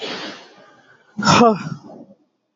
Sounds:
Sigh